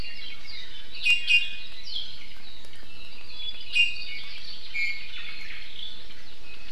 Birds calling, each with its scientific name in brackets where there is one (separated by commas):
Iiwi (Drepanis coccinea), Apapane (Himatione sanguinea)